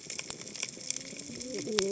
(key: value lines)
label: biophony, cascading saw
recorder: HydroMoth